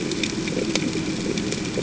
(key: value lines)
label: ambient
recorder: HydroMoth